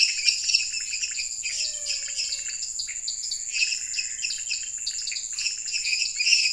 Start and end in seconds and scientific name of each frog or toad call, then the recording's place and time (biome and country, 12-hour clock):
0.0	6.5	Dendropsophus minutus
0.0	6.5	Dendropsophus nanus
0.0	6.5	Leptodactylus podicipinus
1.5	2.7	Physalaemus albonotatus
5.3	5.5	Scinax fuscovarius
Cerrado, Brazil, 10:00pm